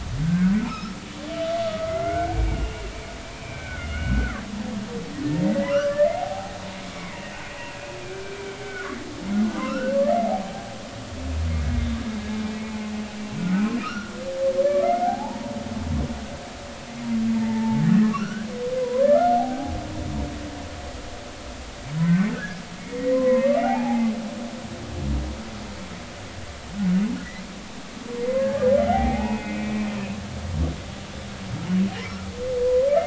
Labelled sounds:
0.2	0.9	humpback whale, 1.2 to 5.5 kHz
1.6	2.8	humpback whale, 1.2 to 2.9 kHz
3.3	4.4	humpback whale, 1.1 to 3.0 kHz
5.5	6.6	humpback whale, 0.80 to 2.1 kHz
6.9	7.4	humpback whale, 1.8 to 2.7 kHz
8.0	8.9	humpback whale, 1.3 to 2.5 kHz
9.6	10.0	humpback whale, 1.2 to 2.8 kHz
10.2	10.7	humpback whale, 0.80 to 0.86 kHz
11.5	11.8	humpback whale, 2.1 to 2.2 kHz
13.0	14.1	humpback whale, 1.1 to 2.8 kHz
14.8	15.5	humpback whale, 0.80 to 2.2 kHz
17.4	18.5	humpback whale, 0.83 to 3.1 kHz
18.8	19.8	humpback whale, 0.80 to 1.5 kHz
21.9	24.1	humpback whale, 0.80 to 2.8 kHz
28.4	29.9	humpback whale, 0.80 to 2.6 kHz

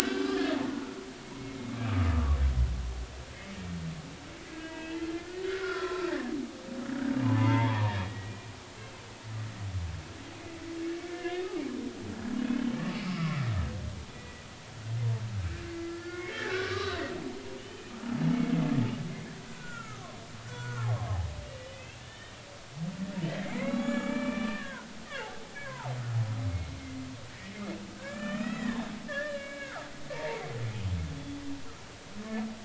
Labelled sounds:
0.1	1.0	humpback whale, 1.1 to 1.9 kHz
1.7	2.4	humpback whale, 1.1 to 1.3 kHz
4.5	6.3	humpback whale, 0.99 to 3.0 kHz
7.2	8.4	humpback whale, 0.80 to 3.4 kHz
11.1	11.5	humpback whale, 1.6 to 2.9 kHz
13.0	13.5	humpback whale, 1.0 to 1.4 kHz
14.1	14.5	humpback whale, 1.9 to 2.5 kHz
15.7	17.9	humpback whale, 0.96 to 4.0 kHz
19.6	20.9	humpback whale, 0.93 to 1.6 kHz
21.7	22.3	humpback whale, 2.4 to 3.8 kHz
23.0	24.9	humpback whale, 0.86 to 7.0 kHz
25.5	25.9	humpback whale, 0.80 to 2.3 kHz
26.5	26.7	humpback whale, 2.1 to 2.2 kHz
27.3	30.5	humpback whale, 0.86 to 5.2 kHz

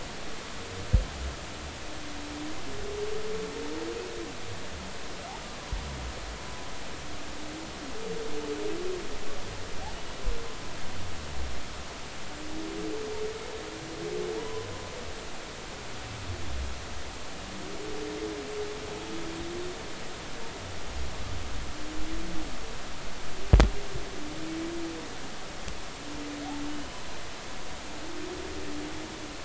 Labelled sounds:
14.4	14.7	humpback whale, 0.86 to 3.1 kHz

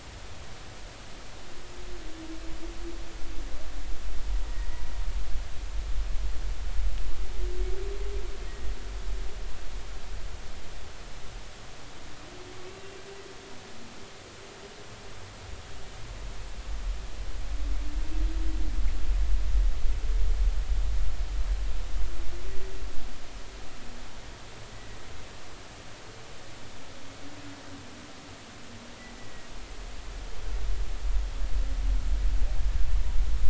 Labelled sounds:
8.5	8.7	humpback whale, 1.8 to 2.0 kHz
12.7	13.0	humpback whale, 2.6 to 2.8 kHz
24.7	25.0	humpback whale, 1.9 to 2.0 kHz
29.2	29.5	humpback whale, 1.9 to 2.0 kHz

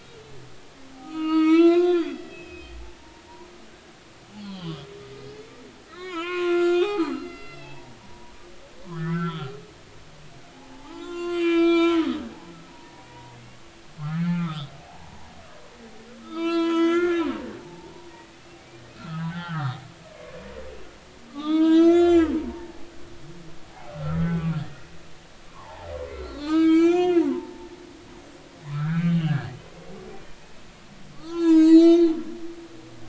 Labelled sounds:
1.0	3.9	humpback whale, 0.90 to 5.2 kHz
4.3	4.8	humpback whale, 0.96 to 4.7 kHz
5.2	8.3	humpback whale, 0.80 to 5.1 kHz
8.9	9.5	humpback whale, 1.2 to 3.7 kHz
10.5	13.3	humpback whale, 0.80 to 8.0 kHz
14.0	15.3	humpback whale, 0.80 to 3.9 kHz
16.2	19.8	humpback whale, 0.83 to 7.0 kHz
21.3	22.9	humpback whale, 0.80 to 7.7 kHz
23.6	25.0	humpback whale, 0.80 to 2.2 kHz
25.3	27.7	humpback whale, 0.80 to 6.5 kHz
28.7	29.9	humpback whale, 1.2 to 3.3 kHz
30.4	30.7	humpback whale, 2.5 to 2.6 kHz
31.1	33.0	humpback whale, 0.86 to 7.9 kHz

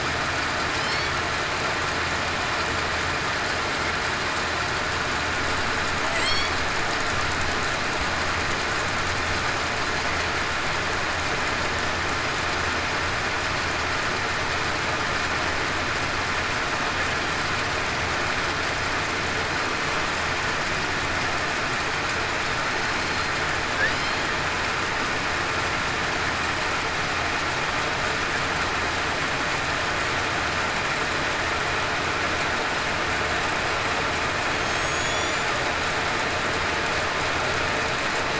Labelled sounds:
6.2	6.5	killer whale, southern resident, 7.5 to 8.0 kHz
34.6	35.4	killer whale, southern resident, 3.3 to 7.1 kHz

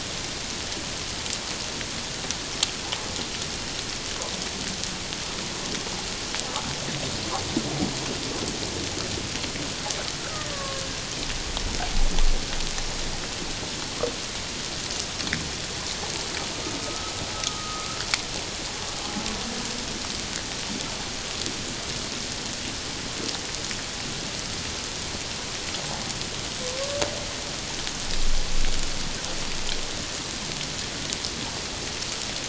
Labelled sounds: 10.2	10.8	killer whale, Bigg's (transient), 1.0 to 1.7 kHz
16.8	17.9	killer whale, Bigg's (transient), 1.2 to 1.4 kHz

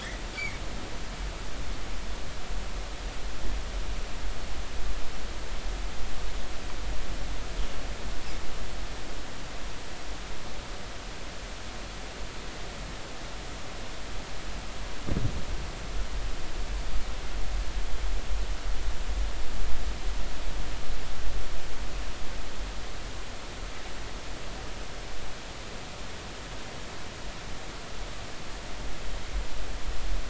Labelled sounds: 0.0	0.6	humpback whale, 1.7 to 2.4 kHz

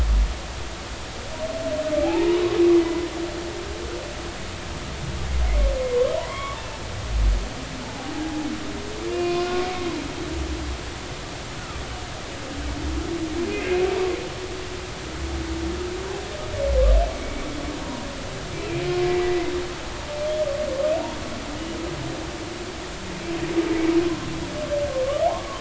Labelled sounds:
2.0	3.1	humpback whale, 0.80 to 2.1 kHz
6.3	6.8	humpback whale, 0.96 to 3.4 kHz
7.2	8.1	humpback whale, 0.80 to 2.4 kHz
9.1	10.5	humpback whale, 0.99 to 2.8 kHz
13.5	13.8	humpback whale, 2.0 to 2.1 kHz
17.2	18.1	humpback whale, 0.90 to 2.3 kHz
19.1	19.4	humpback whale, 1.8 to 2.0 kHz
25.3	25.5	humpback whale, 0.80 to 1.2 kHz

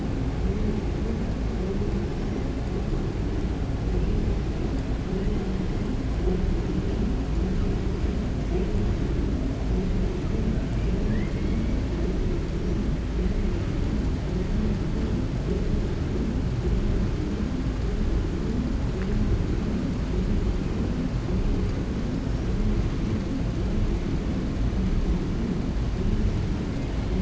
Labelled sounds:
11.0	11.7	killer whale, 1.2 to 3.0 kHz

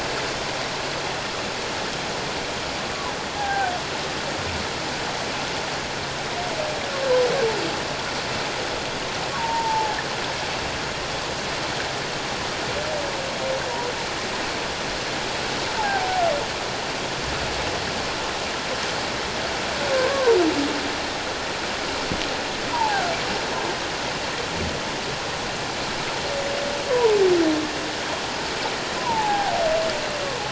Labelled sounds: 3.4	3.7	humpback whale, 0.78 to 1.7 kHz
9.4	9.9	humpback whale, 0.78 to 1.0 kHz
15.8	16.2	humpback whale, 0.78 to 0.97 kHz
20.0	20.4	humpback whale, 0.91 to 1.2 kHz
22.7	23.1	humpback whale, 0.78 to 1.0 kHz
29.0	29.6	humpback whale, 0.78 to 1.7 kHz

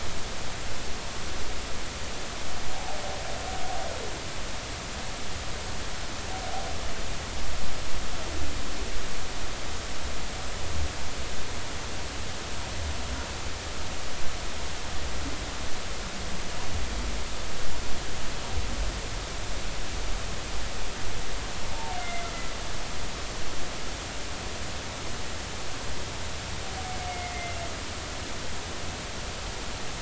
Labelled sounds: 21.7	22.3	humpback whale, 0.80 to 2.1 kHz
27.1	27.3	humpback whale, 1.9 to 2.2 kHz

